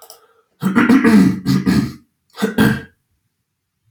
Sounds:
Cough